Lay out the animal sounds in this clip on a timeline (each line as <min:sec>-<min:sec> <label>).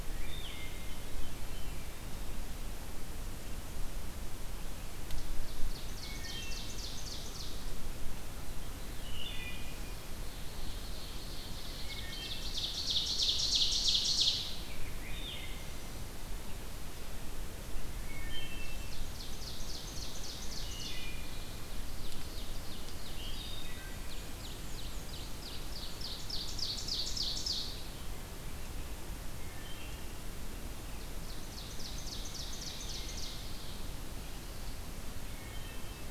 0:00.1-0:01.0 Wood Thrush (Hylocichla mustelina)
0:00.5-0:01.9 Veery (Catharus fuscescens)
0:05.3-0:07.6 Ovenbird (Seiurus aurocapilla)
0:06.0-0:06.9 Wood Thrush (Hylocichla mustelina)
0:08.3-0:09.5 Veery (Catharus fuscescens)
0:09.0-0:10.0 Wood Thrush (Hylocichla mustelina)
0:10.2-0:14.6 Ovenbird (Seiurus aurocapilla)
0:11.9-0:12.6 Wood Thrush (Hylocichla mustelina)
0:14.5-0:15.4 Rose-breasted Grosbeak (Pheucticus ludovicianus)
0:14.9-0:16.0 Wood Thrush (Hylocichla mustelina)
0:18.0-0:18.9 Wood Thrush (Hylocichla mustelina)
0:18.7-0:27.9 Ovenbird (Seiurus aurocapilla)
0:20.5-0:21.6 Wood Thrush (Hylocichla mustelina)
0:22.9-0:24.1 Wood Thrush (Hylocichla mustelina)
0:23.8-0:25.5 Black-and-white Warbler (Mniotilta varia)
0:29.3-0:30.2 Wood Thrush (Hylocichla mustelina)
0:31.0-0:33.9 Ovenbird (Seiurus aurocapilla)
0:35.3-0:36.1 Wood Thrush (Hylocichla mustelina)